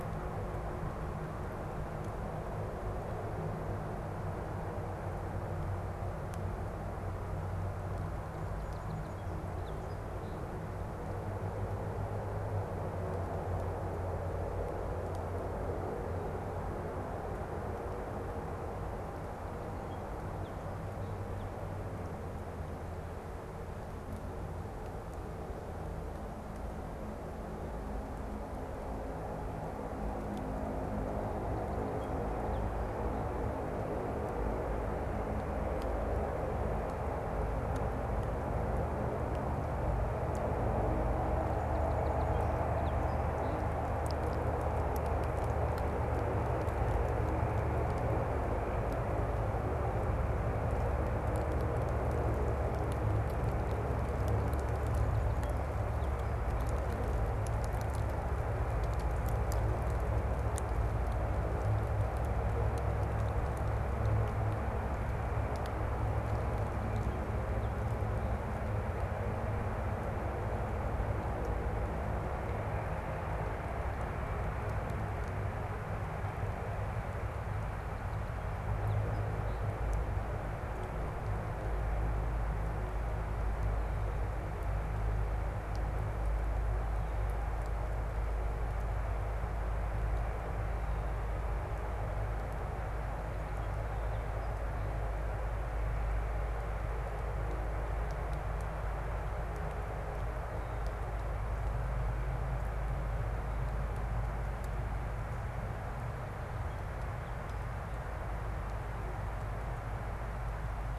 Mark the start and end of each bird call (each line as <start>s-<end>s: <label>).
7.6s-11.3s: Song Sparrow (Melospiza melodia)
19.1s-21.9s: Song Sparrow (Melospiza melodia)
31.1s-33.6s: Song Sparrow (Melospiza melodia)
40.9s-44.0s: Song Sparrow (Melospiza melodia)
54.4s-56.4s: Song Sparrow (Melospiza melodia)
66.1s-68.8s: Song Sparrow (Melospiza melodia)
77.0s-79.9s: Song Sparrow (Melospiza melodia)
92.7s-95.4s: Song Sparrow (Melospiza melodia)
106.1s-107.9s: Song Sparrow (Melospiza melodia)